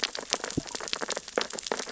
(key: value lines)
label: biophony, sea urchins (Echinidae)
recorder: SoundTrap 600 or HydroMoth